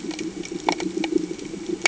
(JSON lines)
{"label": "anthrophony, boat engine", "recorder": "HydroMoth"}